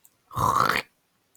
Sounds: Throat clearing